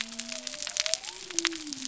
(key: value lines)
label: biophony
recorder: SoundTrap 300